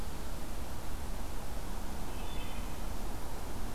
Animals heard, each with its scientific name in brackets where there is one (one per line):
Wood Thrush (Hylocichla mustelina)